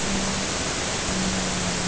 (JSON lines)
{"label": "anthrophony, boat engine", "recorder": "HydroMoth"}